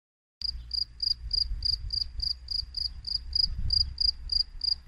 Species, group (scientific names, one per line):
Gryllus campestris
Orthoptera